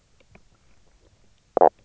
{"label": "biophony, knock croak", "recorder": "SoundTrap 300"}
{"label": "biophony, stridulation", "recorder": "SoundTrap 300"}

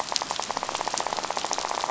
{"label": "biophony, rattle", "recorder": "SoundTrap 500"}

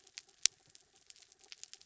{"label": "anthrophony, mechanical", "recorder": "SoundTrap 300"}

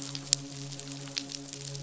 {"label": "biophony, midshipman", "recorder": "SoundTrap 500"}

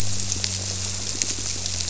{"label": "biophony", "recorder": "SoundTrap 300"}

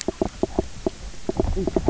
{"label": "biophony, knock croak", "recorder": "SoundTrap 300"}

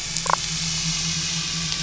{"label": "biophony, damselfish", "recorder": "SoundTrap 500"}
{"label": "anthrophony, boat engine", "recorder": "SoundTrap 500"}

